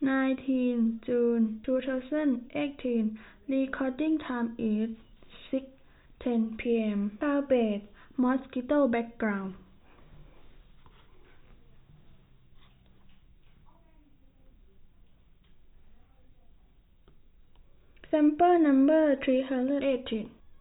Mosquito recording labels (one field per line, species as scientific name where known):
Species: no mosquito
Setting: cup